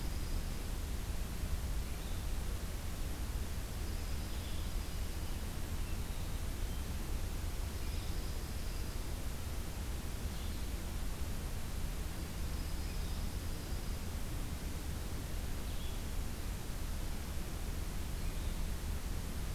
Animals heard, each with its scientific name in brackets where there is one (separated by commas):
Blue-headed Vireo (Vireo solitarius), Dark-eyed Junco (Junco hyemalis)